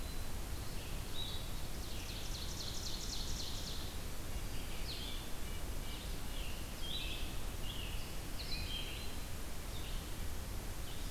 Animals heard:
Blue-headed Vireo (Vireo solitarius), Red-eyed Vireo (Vireo olivaceus), Red-breasted Nuthatch (Sitta canadensis), Ovenbird (Seiurus aurocapilla)

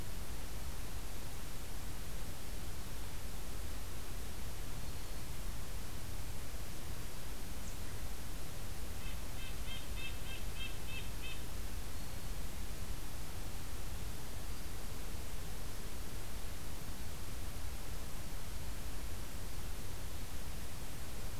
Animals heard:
Red-breasted Nuthatch (Sitta canadensis)

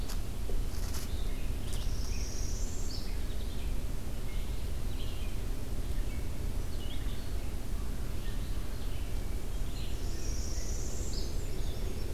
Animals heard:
Red-eyed Vireo (Vireo olivaceus), Black-and-white Warbler (Mniotilta varia), Northern Parula (Setophaga americana)

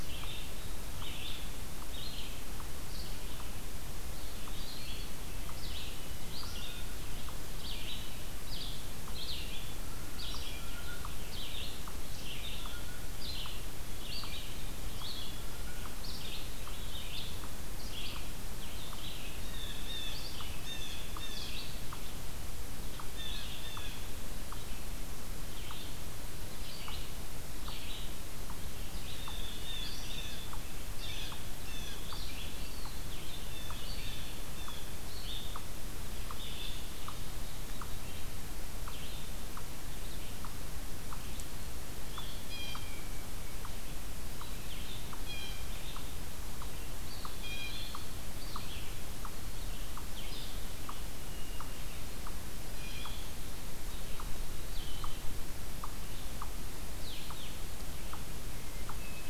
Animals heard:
Blue-headed Vireo (Vireo solitarius), Eastern Wood-Pewee (Contopus virens), unknown mammal, Black-capped Chickadee (Poecile atricapillus), Blue Jay (Cyanocitta cristata), Hermit Thrush (Catharus guttatus), Red-eyed Vireo (Vireo olivaceus)

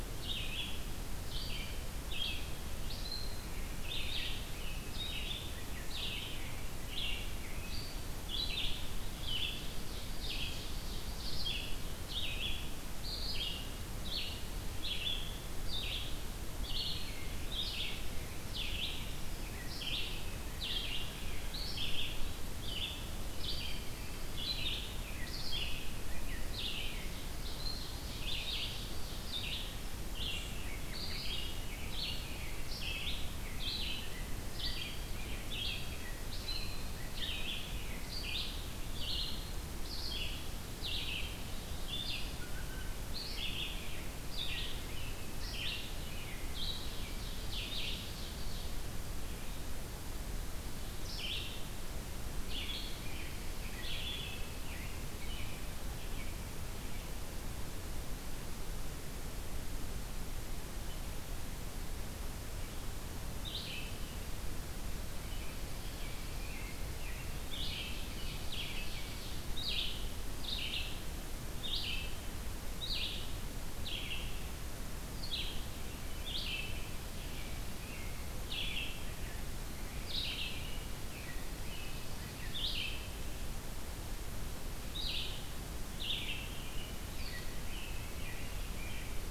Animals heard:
Red-eyed Vireo (Vireo olivaceus), Ovenbird (Seiurus aurocapilla), American Robin (Turdus migratorius)

